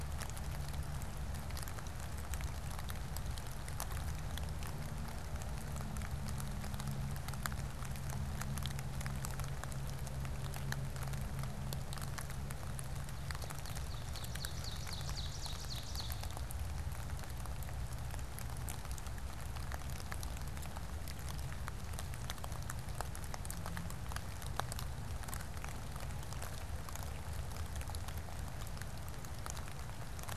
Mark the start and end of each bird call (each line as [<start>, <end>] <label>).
[13.08, 16.58] Ovenbird (Seiurus aurocapilla)